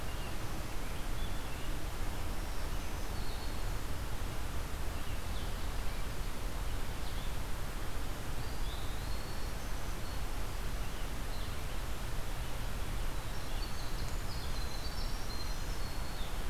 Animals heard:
Black-throated Green Warbler (Setophaga virens), Winter Wren (Troglodytes hiemalis), Eastern Wood-Pewee (Contopus virens)

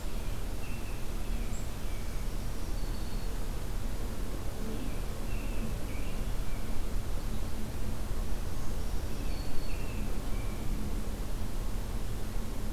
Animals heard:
Black-throated Green Warbler (Setophaga virens), American Robin (Turdus migratorius)

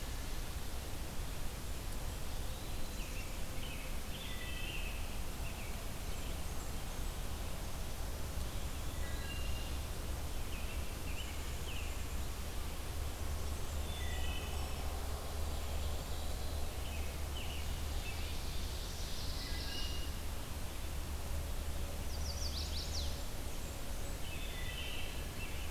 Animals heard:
Black-throated Blue Warbler (Setophaga caerulescens), American Robin (Turdus migratorius), Ovenbird (Seiurus aurocapilla), Blackburnian Warbler (Setophaga fusca), Chestnut-sided Warbler (Setophaga pensylvanica), Wood Thrush (Hylocichla mustelina), Eastern Wood-Pewee (Contopus virens)

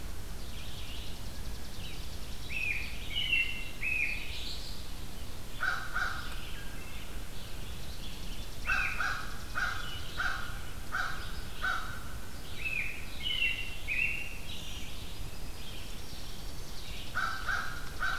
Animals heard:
Red-eyed Vireo (Vireo olivaceus), Wood Thrush (Hylocichla mustelina), American Robin (Turdus migratorius), Chipping Sparrow (Spizella passerina), Black-throated Green Warbler (Setophaga virens), American Crow (Corvus brachyrhynchos)

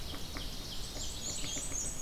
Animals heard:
Ovenbird (Seiurus aurocapilla), Black-and-white Warbler (Mniotilta varia), Red-eyed Vireo (Vireo olivaceus)

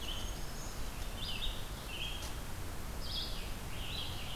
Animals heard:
Red-eyed Vireo (Vireo olivaceus), Scarlet Tanager (Piranga olivacea), Black-throated Green Warbler (Setophaga virens)

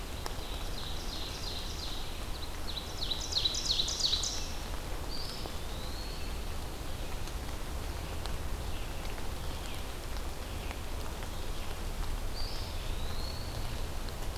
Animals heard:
Ovenbird (Seiurus aurocapilla), Eastern Wood-Pewee (Contopus virens)

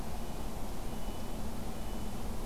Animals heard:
Red-breasted Nuthatch (Sitta canadensis)

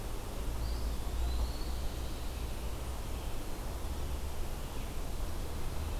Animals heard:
Eastern Wood-Pewee (Contopus virens)

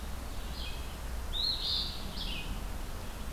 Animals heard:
Red-eyed Vireo (Vireo olivaceus), Eastern Phoebe (Sayornis phoebe)

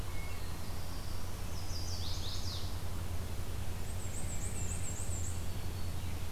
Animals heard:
Black-and-white Warbler (Mniotilta varia), Chestnut-sided Warbler (Setophaga pensylvanica), Wood Thrush (Hylocichla mustelina), Black-throated Blue Warbler (Setophaga caerulescens), Black-throated Green Warbler (Setophaga virens)

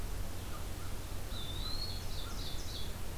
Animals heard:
Blue-headed Vireo (Vireo solitarius), American Crow (Corvus brachyrhynchos), Ovenbird (Seiurus aurocapilla), Eastern Wood-Pewee (Contopus virens)

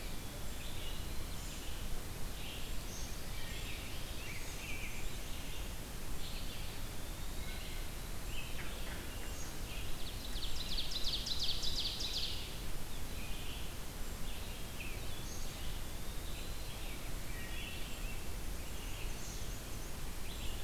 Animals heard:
Ovenbird (Seiurus aurocapilla), Eastern Wood-Pewee (Contopus virens), Rose-breasted Grosbeak (Pheucticus ludovicianus), Brown Creeper (Certhia americana), Red-eyed Vireo (Vireo olivaceus), Wood Thrush (Hylocichla mustelina), Black-and-white Warbler (Mniotilta varia)

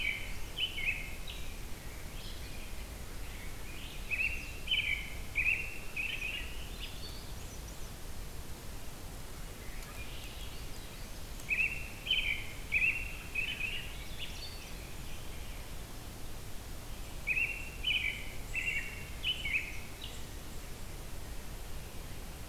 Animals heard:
Red-winged Blackbird (Agelaius phoeniceus), American Robin (Turdus migratorius), Swainson's Thrush (Catharus ustulatus), Black-capped Chickadee (Poecile atricapillus)

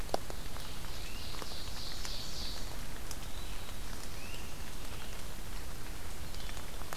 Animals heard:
Ovenbird (Seiurus aurocapilla), Great Crested Flycatcher (Myiarchus crinitus), Black-throated Blue Warbler (Setophaga caerulescens), Red-eyed Vireo (Vireo olivaceus)

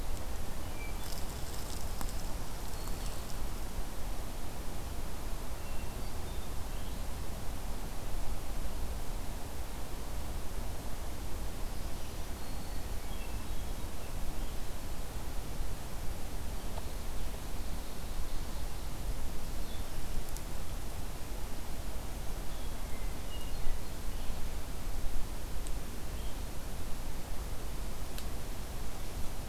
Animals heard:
Ovenbird (Seiurus aurocapilla), Blue-headed Vireo (Vireo solitarius), Black-throated Green Warbler (Setophaga virens), Hermit Thrush (Catharus guttatus)

